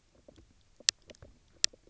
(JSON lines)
{"label": "biophony, low growl", "recorder": "SoundTrap 300"}